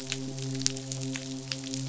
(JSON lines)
{"label": "biophony, midshipman", "recorder": "SoundTrap 500"}